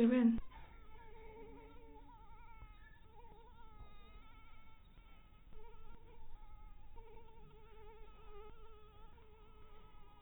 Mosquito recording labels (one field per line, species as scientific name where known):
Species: Anopheles maculatus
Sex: female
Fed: blood-fed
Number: one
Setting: cup